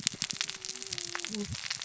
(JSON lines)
{"label": "biophony, cascading saw", "recorder": "SoundTrap 600 or HydroMoth"}